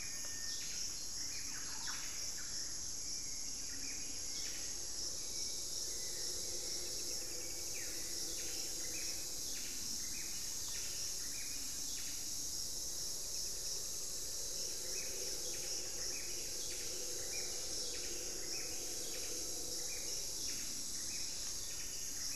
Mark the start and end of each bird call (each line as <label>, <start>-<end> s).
Hauxwell's Thrush (Turdus hauxwelli), 0.0-12.2 s
Buff-breasted Wren (Cantorchilus leucotis), 0.0-12.4 s
Pygmy Antwren (Myrmotherula brachyura), 6.7-7.8 s
unidentified bird, 9.6-11.6 s
Pygmy Antwren (Myrmotherula brachyura), 13.0-14.9 s
Buff-breasted Wren (Cantorchilus leucotis), 14.4-22.4 s
Black-faced Antthrush (Formicarius analis), 20.8-22.4 s